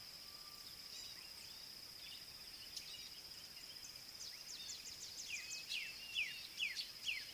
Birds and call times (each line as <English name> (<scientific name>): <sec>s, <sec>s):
Gray-backed Camaroptera (Camaroptera brevicaudata): 1.0s
Black-backed Puffback (Dryoscopus cubla): 6.2s